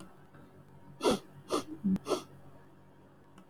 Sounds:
Sniff